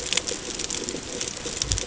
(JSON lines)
{"label": "ambient", "recorder": "HydroMoth"}